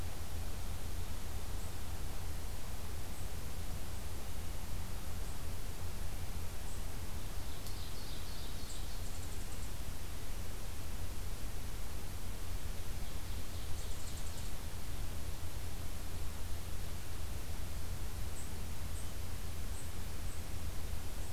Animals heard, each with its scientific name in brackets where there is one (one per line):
Ovenbird (Seiurus aurocapilla)